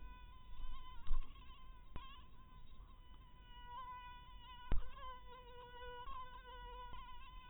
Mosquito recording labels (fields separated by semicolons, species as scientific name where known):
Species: mosquito; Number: one; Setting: cup